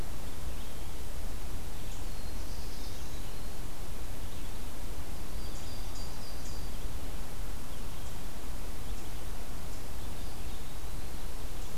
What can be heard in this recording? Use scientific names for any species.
Setophaga caerulescens, Contopus virens, Setophaga coronata